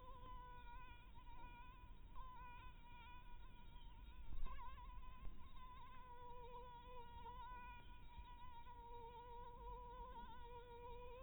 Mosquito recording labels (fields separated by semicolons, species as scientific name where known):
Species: Anopheles dirus; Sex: female; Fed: blood-fed; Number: one; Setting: cup